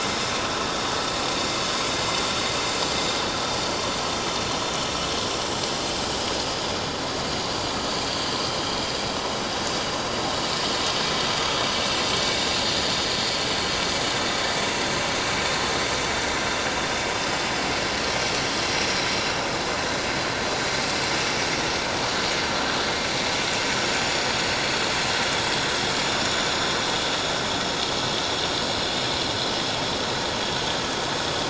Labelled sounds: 10.6	10.9	vessel noise, 7.2 to 7.4 kHz
23.9	24.2	vessel noise, 6.8 to 7.2 kHz

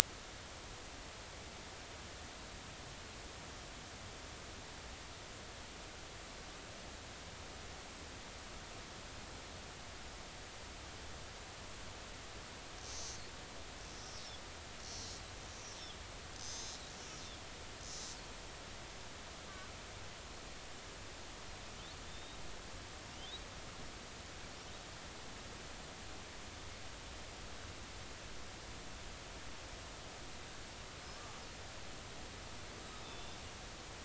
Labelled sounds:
12.8	13.1	Risso's dolphin, 6.2 to 6.4 kHz
14.8	15.1	Risso's dolphin, 4.2 to 5.9 kHz
16.3	16.8	Risso's dolphin, 5.0 to 6.5 kHz
17.8	18.2	Risso's dolphin, 5.8 to 6.1 kHz
22.0	22.4	Risso's dolphin, 3.5 to 3.9 kHz
33.0	33.4	Risso's dolphin, 3.4 to 3.7 kHz

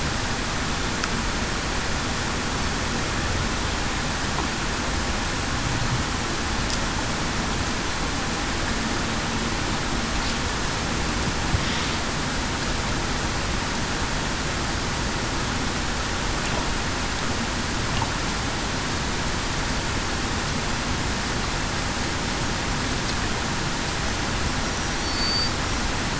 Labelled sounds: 25.0	25.5	killer whale, Bigg's (transient), 4.4 to 4.7 kHz

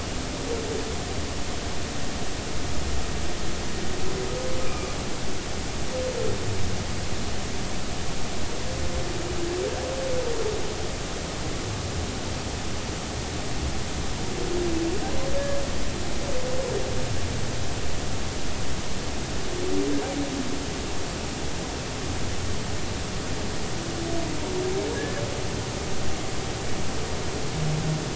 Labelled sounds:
4.6	4.9	humpback whale, 2.3 to 2.6 kHz
15.4	15.6	humpback whale, 1.6 to 1.7 kHz
24.9	25.2	humpback whale, 1.6 to 1.8 kHz

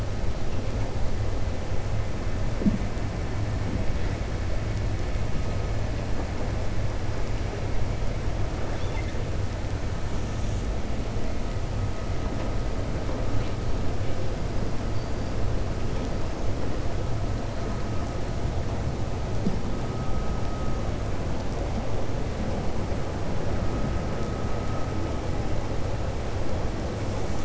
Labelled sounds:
8.6	9.2	killer whale, 0.72 to 4.4 kHz
14.9	15.3	killer whale, 4.6 to 4.8 kHz

